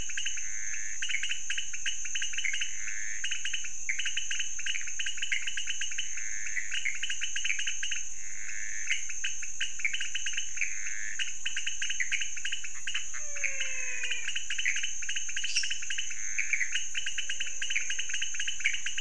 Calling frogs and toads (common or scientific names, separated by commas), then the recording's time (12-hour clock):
pointedbelly frog, Pithecopus azureus, menwig frog, lesser tree frog
1:30am